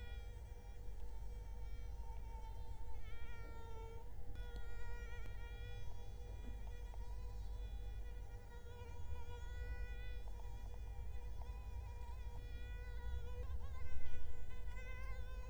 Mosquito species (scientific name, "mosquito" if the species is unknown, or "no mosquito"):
Culex quinquefasciatus